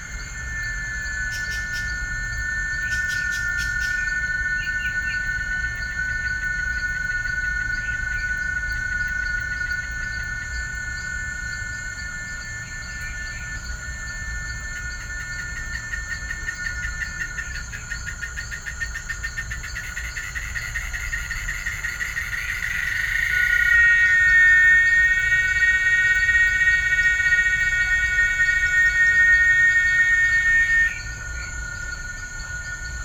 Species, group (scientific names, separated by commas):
Quesada gigas, Cicadidae